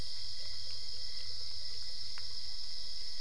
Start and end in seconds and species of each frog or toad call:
none

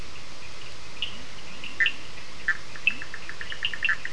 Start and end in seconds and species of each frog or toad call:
0.0	4.1	Sphaenorhynchus surdus
0.9	3.3	Leptodactylus latrans
1.6	4.1	Boana bischoffi

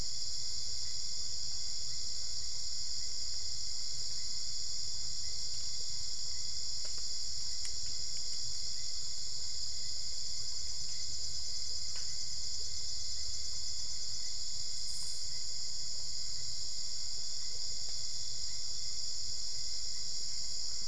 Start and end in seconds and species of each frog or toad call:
none

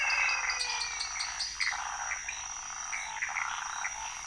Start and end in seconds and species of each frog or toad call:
0.0	1.2	Physalaemus albonotatus
0.0	2.0	Dendropsophus nanus
0.0	4.2	Leptodactylus podicipinus
0.0	4.2	Phyllomedusa sauvagii

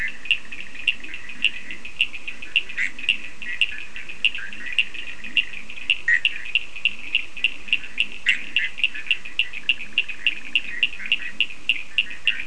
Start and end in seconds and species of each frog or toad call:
0.0	12.4	Sphaenorhynchus surdus
0.2	12.4	Leptodactylus latrans
2.6	12.4	Boana bischoffi

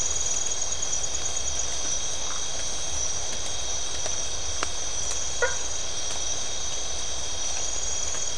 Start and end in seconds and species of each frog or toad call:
2.2	2.5	Phyllomedusa distincta
5.3	5.7	Boana faber

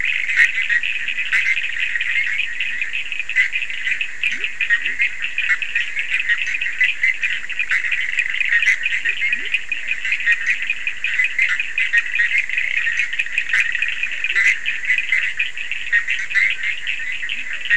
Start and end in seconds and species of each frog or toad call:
0.0	1.3	Leptodactylus latrans
0.0	17.7	Boana bischoffi
0.0	17.7	Sphaenorhynchus surdus
3.6	5.4	Leptodactylus latrans
8.5	17.7	Physalaemus cuvieri
8.7	11.1	Leptodactylus latrans
14.0	14.8	Leptodactylus latrans
17.2	17.7	Leptodactylus latrans

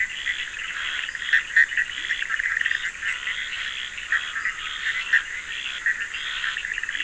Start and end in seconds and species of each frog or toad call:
0.0	7.0	Boana bischoffi
0.0	7.0	Scinax perereca
0.0	7.0	Sphaenorhynchus surdus
1.9	2.2	Leptodactylus latrans

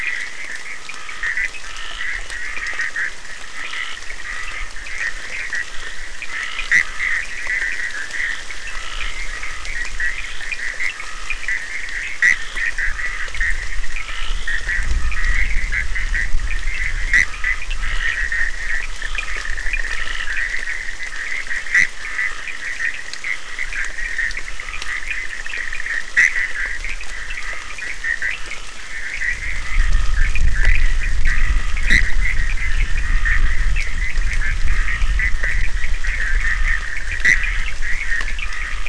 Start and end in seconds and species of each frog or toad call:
0.0	1.8	Sphaenorhynchus surdus
0.0	38.8	Boana bischoffi
0.0	38.8	Scinax perereca
10.4	20.0	Sphaenorhynchus surdus
23.9	38.6	Sphaenorhynchus surdus

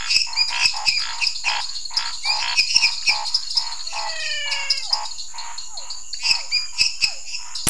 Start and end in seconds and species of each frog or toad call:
0.0	7.6	Dendropsophus minutus
0.0	7.6	Dendropsophus nanus
0.0	7.6	Scinax fuscovarius
0.3	1.6	Leptodactylus elenae
2.2	3.2	Leptodactylus elenae
4.8	7.3	Physalaemus cuvieri
6.5	6.7	Leptodactylus elenae

